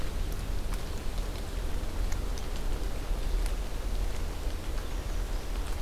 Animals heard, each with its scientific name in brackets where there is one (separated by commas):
American Redstart (Setophaga ruticilla)